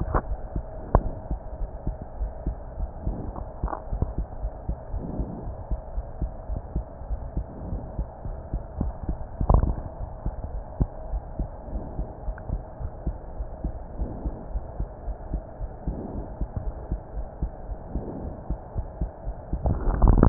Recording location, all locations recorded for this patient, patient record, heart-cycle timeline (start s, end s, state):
aortic valve (AV)
aortic valve (AV)+pulmonary valve (PV)+tricuspid valve (TV)+mitral valve (MV)
#Age: Child
#Sex: Female
#Height: 115.0 cm
#Weight: 19.6 kg
#Pregnancy status: False
#Murmur: Absent
#Murmur locations: nan
#Most audible location: nan
#Systolic murmur timing: nan
#Systolic murmur shape: nan
#Systolic murmur grading: nan
#Systolic murmur pitch: nan
#Systolic murmur quality: nan
#Diastolic murmur timing: nan
#Diastolic murmur shape: nan
#Diastolic murmur grading: nan
#Diastolic murmur pitch: nan
#Diastolic murmur quality: nan
#Outcome: Normal
#Campaign: 2015 screening campaign
0.00	1.58	unannotated
1.58	1.67	S1
1.67	1.86	systole
1.86	1.93	S2
1.93	2.18	diastole
2.18	2.31	S1
2.31	2.45	systole
2.45	2.54	S2
2.54	2.76	diastole
2.76	2.90	S1
2.90	3.04	systole
3.04	3.18	S2
3.18	3.38	diastole
3.38	3.48	S1
3.48	3.62	systole
3.62	3.70	S2
3.70	3.91	diastole
3.91	3.99	S1
3.99	4.14	systole
4.14	4.26	S2
4.26	4.42	diastole
4.42	4.50	S1
4.50	4.66	systole
4.66	4.76	S2
4.76	4.92	diastole
4.92	5.00	S1
5.00	5.18	systole
5.18	5.25	S2
5.25	5.45	diastole
5.45	5.53	S1
5.53	5.70	systole
5.70	5.77	S2
5.77	5.96	diastole
5.96	6.03	S1
6.03	6.21	systole
6.21	6.29	S2
6.29	6.48	diastole
6.48	6.55	S1
6.55	6.74	systole
6.74	6.82	S2
6.82	7.09	diastole
7.09	7.17	S1
7.17	7.35	systole
7.35	7.44	S2
7.44	7.71	diastole
7.71	7.79	S1
7.79	7.98	systole
7.98	8.04	S2
8.04	8.24	diastole
8.24	8.36	S1
8.36	8.52	systole
8.52	8.59	S2
8.59	8.80	diastole
8.80	8.91	S1
8.91	9.07	systole
9.07	9.17	S2
9.17	9.42	diastole
9.42	20.29	unannotated